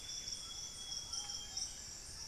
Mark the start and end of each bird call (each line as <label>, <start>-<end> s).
Amazonian Grosbeak (Cyanoloxia rothschildii), 0.0-2.3 s
Buff-breasted Wren (Cantorchilus leucotis), 0.0-2.3 s
Hauxwell's Thrush (Turdus hauxwelli), 0.0-2.3 s
White-throated Toucan (Ramphastos tucanus), 0.0-2.3 s
Ruddy Pigeon (Patagioenas subvinacea), 0.4-2.3 s
Plain-winged Antshrike (Thamnophilus schistaceus), 1.1-2.3 s
Thrush-like Wren (Campylorhynchus turdinus), 1.4-2.3 s